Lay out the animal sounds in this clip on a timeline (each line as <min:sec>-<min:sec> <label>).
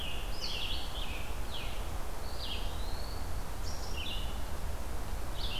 0:00.0-0:01.9 Scarlet Tanager (Piranga olivacea)
0:00.0-0:05.6 Red-eyed Vireo (Vireo olivaceus)
0:02.2-0:03.4 Eastern Wood-Pewee (Contopus virens)